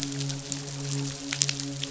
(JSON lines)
{"label": "biophony, midshipman", "recorder": "SoundTrap 500"}